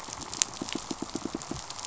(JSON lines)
{"label": "biophony, pulse", "recorder": "SoundTrap 500"}